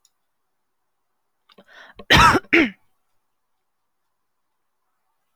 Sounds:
Cough